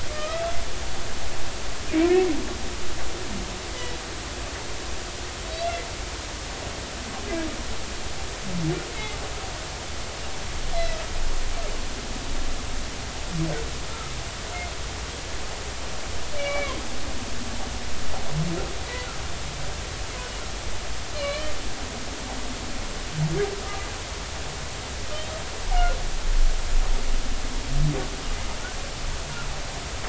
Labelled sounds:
0.1	1.4	humpback whale, 1.2 to 2.7 kHz
1.9	2.1	humpback whale, 2.1 to 2.5 kHz
3.7	3.9	humpback whale, 1.9 to 2.0 kHz
8.9	9.2	humpback whale, 2.0 to 2.2 kHz
10.7	11.0	humpback whale, 5.1 to 5.5 kHz
16.4	16.7	humpback whale, 2.1 to 2.9 kHz
21.1	21.5	humpback whale, 3.9 to 4.4 kHz
22.1	22.5	humpback whale, 2.2 to 3.1 kHz
25.1	25.4	humpback whale, 2.9 to 3.2 kHz

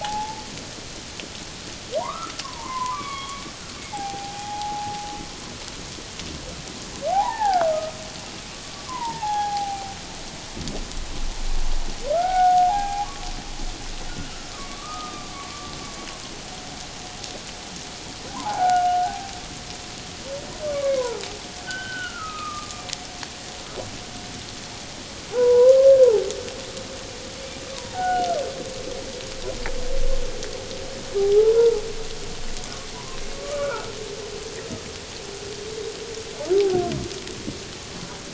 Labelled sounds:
0.0	0.4	humpback whale, 0.78 to 0.94 kHz
2.0	3.4	humpback whale, 0.88 to 3.4 kHz
3.9	5.1	humpback whale, 0.78 to 0.91 kHz
7.1	8.0	humpback whale, 0.78 to 2.0 kHz
8.9	10.0	humpback whale, 0.78 to 1.7 kHz
12.1	13.1	humpback whale, 0.78 to 1.7 kHz
14.5	15.7	humpback whale, 1.0 to 1.3 kHz
18.3	19.3	humpback whale, 0.78 to 1.7 kHz
20.7	21.2	humpback whale, 0.84 to 2.3 kHz
21.6	22.8	humpback whale, 1.1 to 3.1 kHz
25.3	25.8	humpback whale, 0.78 to 1.1 kHz
27.7	28.3	humpback whale, 0.78 to 1.6 kHz
31.2	31.8	humpback whale, 0.78 to 1.0 kHz
32.9	34.0	humpback whale, 0.94 to 1.5 kHz
36.5	36.8	humpback whale, 0.78 to 0.84 kHz

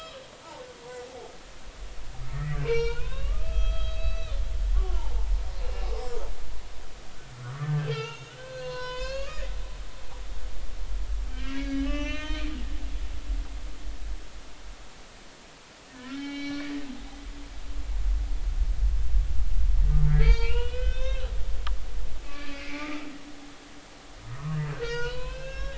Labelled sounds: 2.3	4.4	humpback whale, 0.86 to 6.6 kHz
4.7	5.3	humpback whale, 0.80 to 1.2 kHz
7.4	9.5	humpback whale, 0.83 to 7.1 kHz
11.3	12.5	humpback whale, 1.2 to 6.2 kHz
15.9	16.9	humpback whale, 0.80 to 4.6 kHz
20.1	21.3	humpback whale, 0.86 to 5.9 kHz
22.3	23.0	humpback whale, 2.0 to 4.1 kHz
24.2	25.7	humpback whale, 0.90 to 6.3 kHz

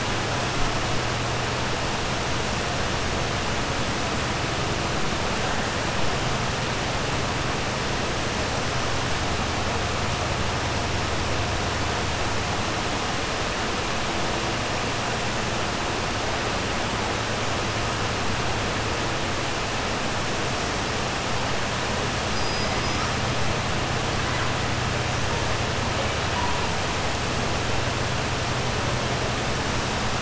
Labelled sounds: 22.2	23.1	killer whale, 4.9 to 6.0 kHz

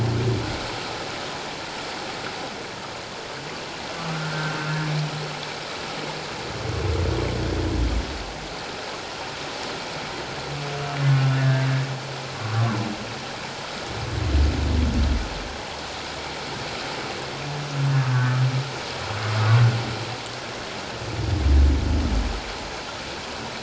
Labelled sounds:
4.3	4.6	humpback whale, 1.5 to 1.6 kHz
11.3	12.6	humpback whale, 1.0 to 1.9 kHz
18.1	18.3	humpback whale, 1.5 to 1.7 kHz

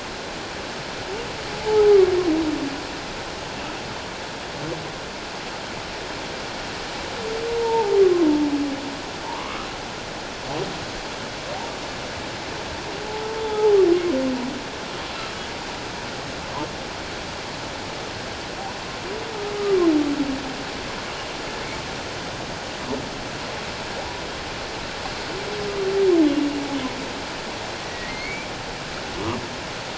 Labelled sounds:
1.6	1.9	humpback whale, 0.78 to 0.94 kHz
7.5	7.9	humpback whale, 0.78 to 0.97 kHz
9.3	9.7	humpback whale, 0.84 to 1.3 kHz
13.4	13.8	humpback whale, 0.78 to 3.6 kHz
27.8	28.5	humpback whale, 1.8 to 2.5 kHz

